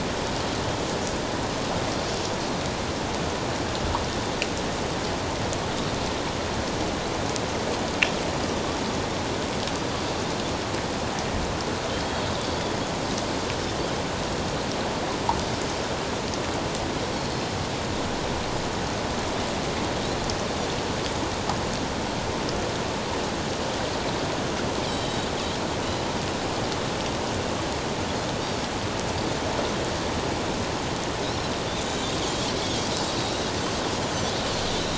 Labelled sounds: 24.9	26.1	Pacific white-sided dolphin, 2.8 to 4.1 kHz
31.8	33.5	Pacific white-sided dolphin, 3.1 to 7.2 kHz

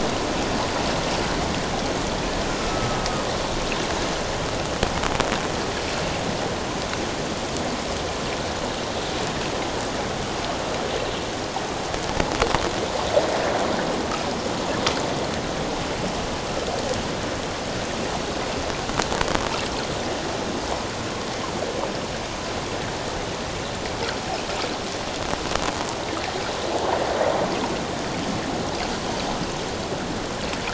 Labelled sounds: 2.6	3.0	killer whale, northern resident, A clan, AA subclan, A01 pod, 1.2 to 1.3 kHz

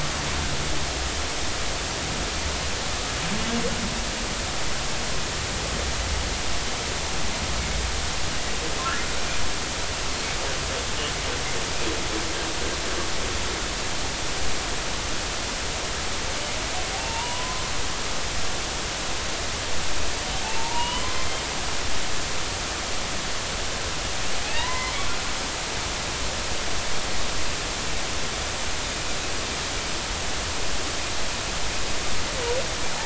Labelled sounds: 16.9	17.6	humpback whale, 0.80 to 2.9 kHz
20.4	21.1	humpback whale, 0.80 to 3.1 kHz
24.4	24.9	humpback whale, 0.80 to 2.9 kHz

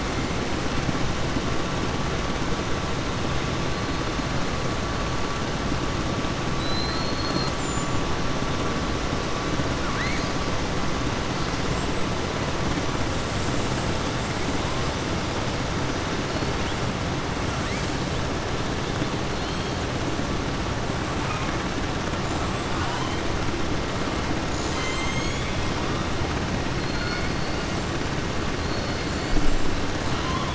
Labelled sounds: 6.5	7.9	killer whale, southern resident, 3.4 to 7.8 kHz
9.8	10.3	killer whale, southern resident, 1.1 to 6.8 kHz
26.7	27.2	killer whale, southern resident, 3.6 to 4.5 kHz
30.0	30.5	killer whale, southern resident, 0.97 to 4.2 kHz

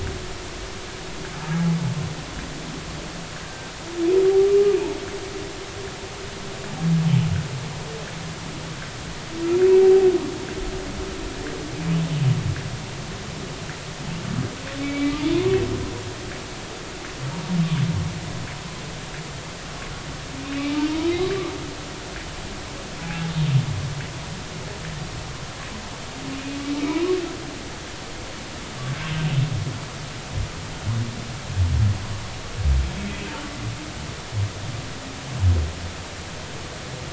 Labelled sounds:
3.4	3.7	humpback whale, 1.5 to 1.7 kHz
14.8	15.2	humpback whale, 1.1 to 2.4 kHz
20.4	20.7	humpback whale, 2.4 to 2.6 kHz
21.1	21.4	humpback whale, 3.8 to 4.0 kHz
26.3	26.6	humpback whale, 2.4 to 2.5 kHz
26.9	27.2	humpback whale, 0.90 to 1.2 kHz

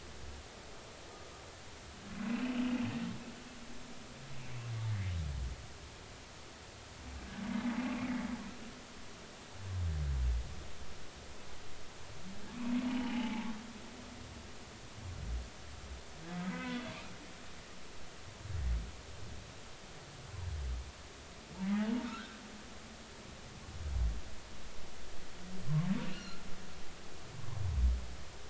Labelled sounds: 2.3	2.5	humpback whale, 2.4 to 2.8 kHz
12.9	13.5	humpback whale, 0.80 to 3.0 kHz
16.5	17.8	humpback whale, 0.96 to 3.5 kHz
21.7	22.4	humpback whale, 0.80 to 1.6 kHz
26.1	26.4	humpback whale, 2.5 to 4.4 kHz

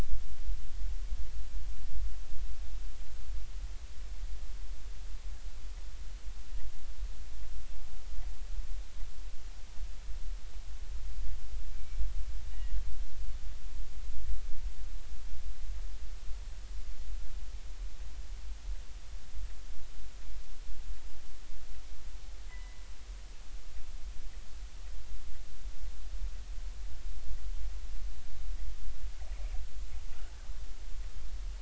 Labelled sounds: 11.7	12.8	killer whale, northern resident, G clan, 2.2 to 2.9 kHz
22.5	22.8	killer whale, northern resident, G clan, 1.9 to 2.1 kHz

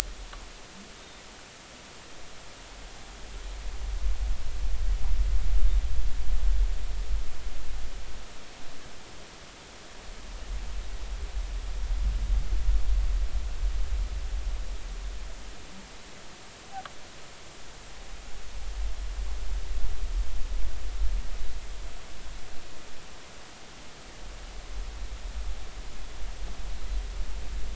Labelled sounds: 1.0	1.2	humpback whale, 3.6 to 3.8 kHz

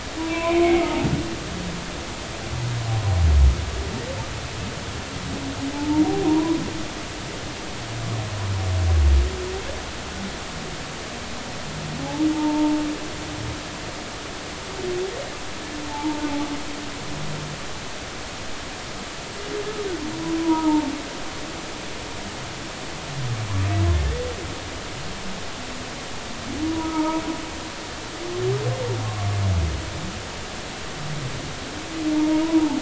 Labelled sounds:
0.2	1.1	humpback whale, 0.80 to 2.5 kHz
5.7	6.6	humpback whale, 0.83 to 1.1 kHz
12.3	12.8	humpback whale, 0.80 to 0.96 kHz
15.9	16.3	humpback whale, 0.80 to 0.99 kHz
20.4	20.9	humpback whale, 0.83 to 1.3 kHz
26.6	27.2	humpback whale, 0.86 to 1.4 kHz
32.1	32.7	humpback whale, 0.80 to 1.0 kHz

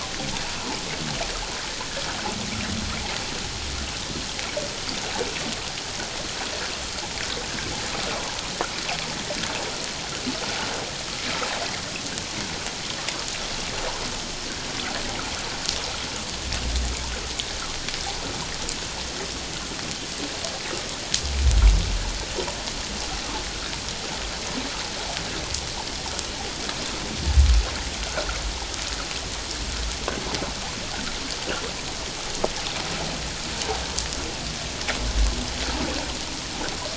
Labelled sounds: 28.0	28.3	humpback whale, 1.3 to 1.6 kHz

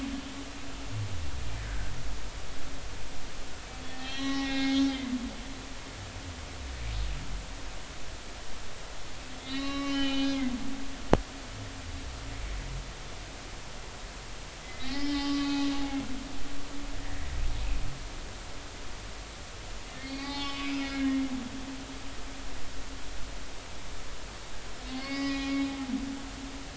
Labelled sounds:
1.6	1.9	humpback whale, 1.4 to 1.7 kHz
4.0	5.2	humpback whale, 0.80 to 5.8 kHz
9.4	10.4	humpback whale, 1.1 to 4.2 kHz
14.6	15.7	humpback whale, 0.80 to 5.2 kHz
20.0	21.2	humpback whale, 0.80 to 5.4 kHz
24.9	25.5	humpback whale, 1.0 to 5.1 kHz

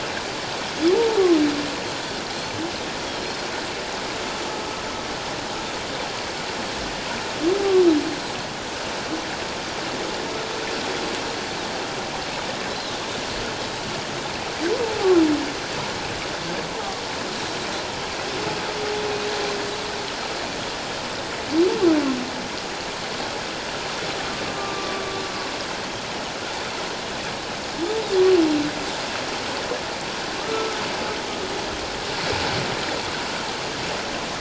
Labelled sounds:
24.6	25.1	humpback whale, 1.1 to 1.2 kHz
30.5	30.8	humpback whale, 1.2 to 1.4 kHz

